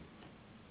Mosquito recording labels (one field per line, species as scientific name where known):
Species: Anopheles gambiae s.s.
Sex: female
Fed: unfed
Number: one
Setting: insect culture